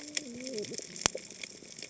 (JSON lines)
{"label": "biophony, cascading saw", "recorder": "HydroMoth"}